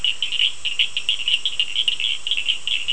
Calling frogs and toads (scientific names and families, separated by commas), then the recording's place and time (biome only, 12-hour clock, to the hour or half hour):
Sphaenorhynchus surdus (Hylidae)
Atlantic Forest, ~8pm